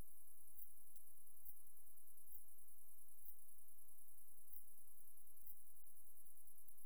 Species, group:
Leptophyes punctatissima, Orthoptera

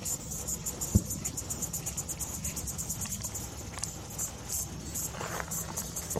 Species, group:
Tettigettalna mariae, Cicadidae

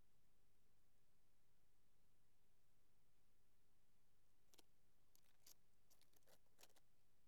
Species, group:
Eupholidoptera latens, Orthoptera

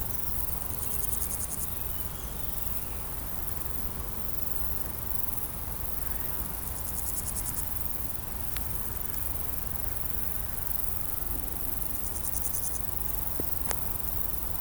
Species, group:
Pseudochorthippus parallelus, Orthoptera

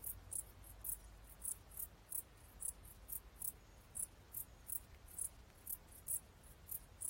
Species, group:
Pholidoptera griseoaptera, Orthoptera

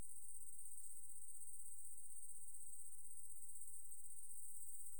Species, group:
Tettigonia viridissima, Orthoptera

